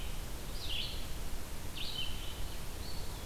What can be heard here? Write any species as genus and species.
Vireo olivaceus, Contopus virens